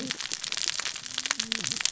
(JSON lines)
{"label": "biophony, cascading saw", "recorder": "SoundTrap 600 or HydroMoth"}